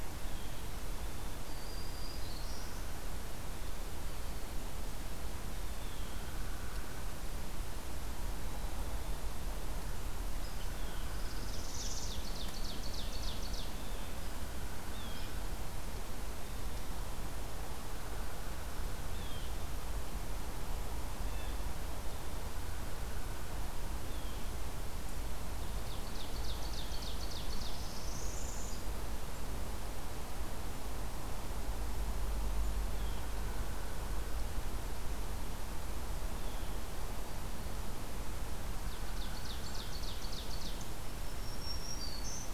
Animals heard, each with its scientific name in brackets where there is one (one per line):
Black-capped Chickadee (Poecile atricapillus)
Black-throated Green Warbler (Setophaga virens)
Blue Jay (Cyanocitta cristata)
Northern Parula (Setophaga americana)
Ovenbird (Seiurus aurocapilla)
Hairy Woodpecker (Dryobates villosus)